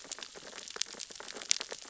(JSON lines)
{"label": "biophony, sea urchins (Echinidae)", "recorder": "SoundTrap 600 or HydroMoth"}